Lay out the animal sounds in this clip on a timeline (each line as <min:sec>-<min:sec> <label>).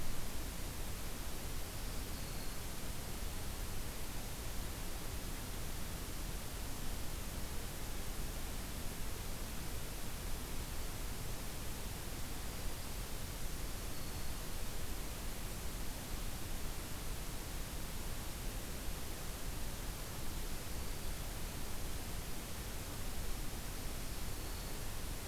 0:01.6-0:02.7 Black-throated Green Warbler (Setophaga virens)
0:13.7-0:14.5 Black-throated Green Warbler (Setophaga virens)
0:24.0-0:24.8 Black-throated Green Warbler (Setophaga virens)